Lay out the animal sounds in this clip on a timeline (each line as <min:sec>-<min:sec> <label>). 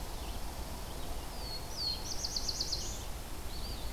0:00.0-0:01.1 Pine Warbler (Setophaga pinus)
0:00.1-0:03.9 Red-eyed Vireo (Vireo olivaceus)
0:01.0-0:03.1 Black-throated Blue Warbler (Setophaga caerulescens)
0:03.4-0:03.9 Eastern Wood-Pewee (Contopus virens)